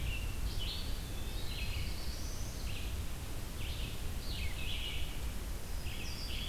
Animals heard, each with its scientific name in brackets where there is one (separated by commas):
Red-eyed Vireo (Vireo olivaceus), Black-throated Blue Warbler (Setophaga caerulescens), Eastern Wood-Pewee (Contopus virens)